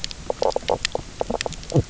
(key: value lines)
label: biophony, knock croak
recorder: SoundTrap 300